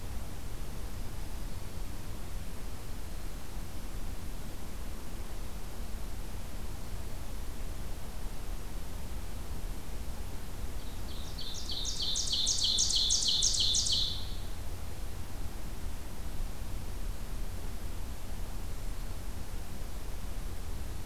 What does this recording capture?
Black-throated Green Warbler, Ovenbird